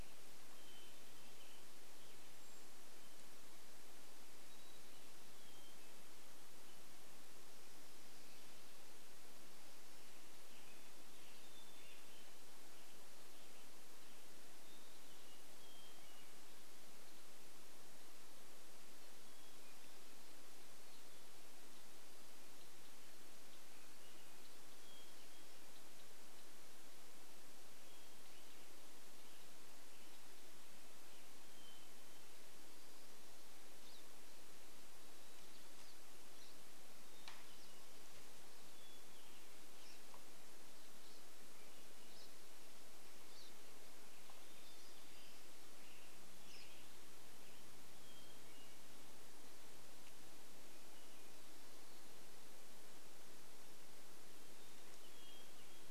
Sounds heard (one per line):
unidentified bird chip note
Hermit Thrush song
Golden-crowned Kinglet call
Western Tanager song